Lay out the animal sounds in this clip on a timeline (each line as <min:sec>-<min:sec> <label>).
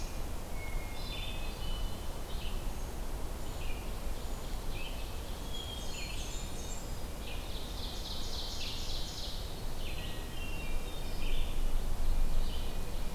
0:00.0-0:13.1 Red-eyed Vireo (Vireo olivaceus)
0:00.4-0:02.0 Hermit Thrush (Catharus guttatus)
0:03.7-0:05.9 Ovenbird (Seiurus aurocapilla)
0:05.4-0:07.0 Blackburnian Warbler (Setophaga fusca)
0:05.4-0:06.7 Hermit Thrush (Catharus guttatus)
0:07.1-0:09.6 Ovenbird (Seiurus aurocapilla)
0:09.8-0:11.3 Hermit Thrush (Catharus guttatus)
0:11.5-0:13.1 Ovenbird (Seiurus aurocapilla)